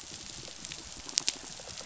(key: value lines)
label: biophony, rattle response
recorder: SoundTrap 500